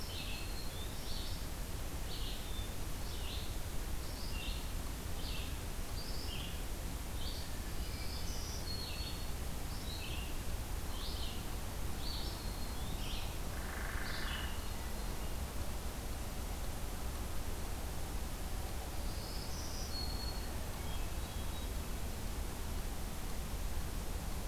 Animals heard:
Hermit Thrush (Catharus guttatus)
Hairy Woodpecker (Dryobates villosus)
Black-throated Green Warbler (Setophaga virens)
Red-eyed Vireo (Vireo olivaceus)

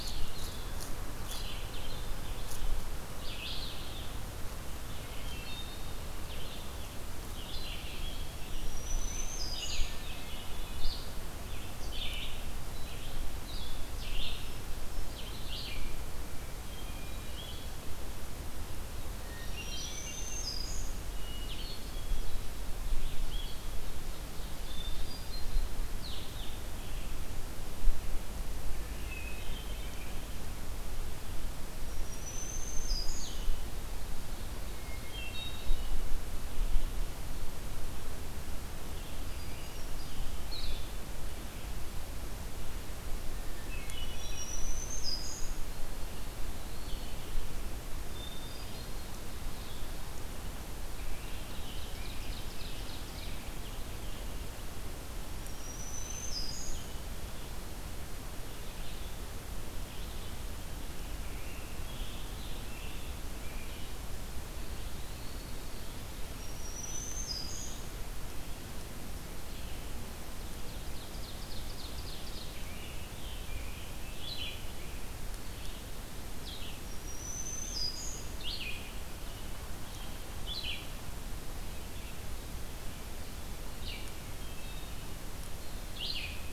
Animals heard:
Red-eyed Vireo (Vireo olivaceus)
Black-throated Green Warbler (Setophaga virens)
Ovenbird (Seiurus aurocapilla)
Blue-headed Vireo (Vireo solitarius)
Scarlet Tanager (Piranga olivacea)
Eastern Wood-Pewee (Contopus virens)
Hermit Thrush (Catharus guttatus)

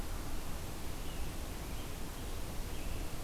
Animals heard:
American Robin (Turdus migratorius)

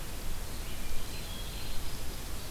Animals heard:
Red-eyed Vireo (Vireo olivaceus)
Hermit Thrush (Catharus guttatus)

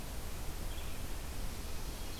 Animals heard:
Red-eyed Vireo (Vireo olivaceus)

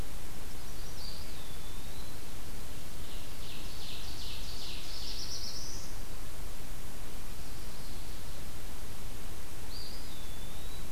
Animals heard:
Ovenbird (Seiurus aurocapilla)
Chestnut-sided Warbler (Setophaga pensylvanica)
Eastern Wood-Pewee (Contopus virens)
Black-throated Blue Warbler (Setophaga caerulescens)

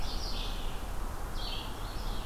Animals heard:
Red-eyed Vireo (Vireo olivaceus)

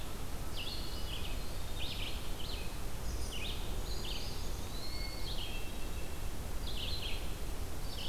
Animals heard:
Brown Creeper (Certhia americana)
Hermit Thrush (Catharus guttatus)
Red-eyed Vireo (Vireo olivaceus)
Eastern Wood-Pewee (Contopus virens)

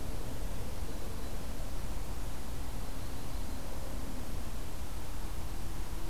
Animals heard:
Yellow-rumped Warbler (Setophaga coronata)

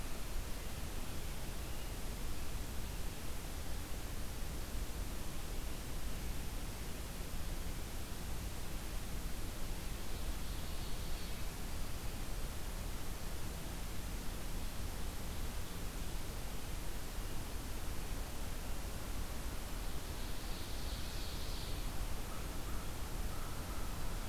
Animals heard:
Ovenbird (Seiurus aurocapilla)
American Crow (Corvus brachyrhynchos)

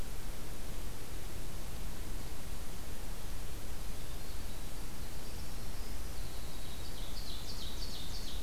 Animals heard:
Ovenbird (Seiurus aurocapilla)
Winter Wren (Troglodytes hiemalis)

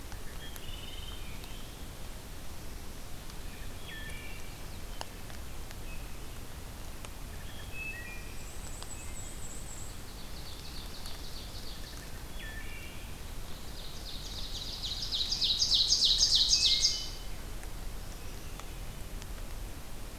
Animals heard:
Chestnut-sided Warbler (Setophaga pensylvanica)
Scarlet Tanager (Piranga olivacea)
Ovenbird (Seiurus aurocapilla)
Wood Thrush (Hylocichla mustelina)
Black-throated Blue Warbler (Setophaga caerulescens)
Black-and-white Warbler (Mniotilta varia)

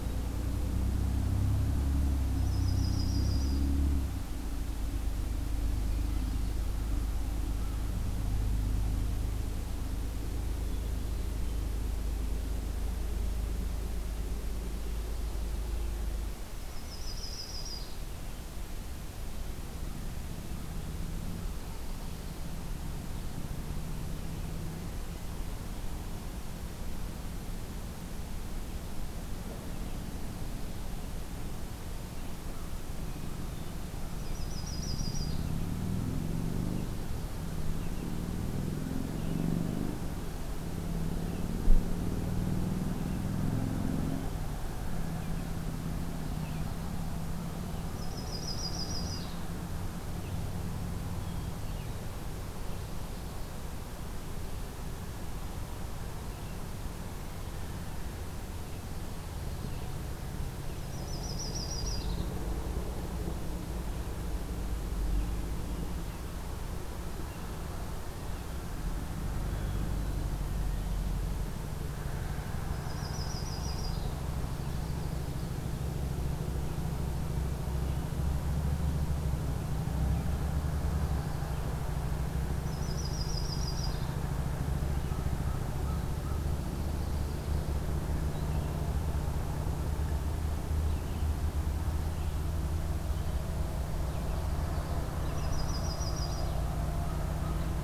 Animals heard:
Yellow-rumped Warbler (Setophaga coronata)
Red-eyed Vireo (Vireo olivaceus)
Hermit Thrush (Catharus guttatus)

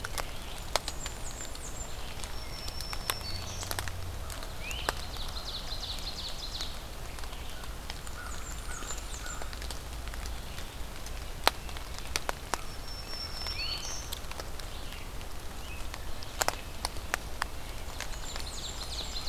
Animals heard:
Ovenbird (Seiurus aurocapilla)
Red-eyed Vireo (Vireo olivaceus)
Black-throated Green Warbler (Setophaga virens)
Great Crested Flycatcher (Myiarchus crinitus)
American Crow (Corvus brachyrhynchos)
Blackburnian Warbler (Setophaga fusca)

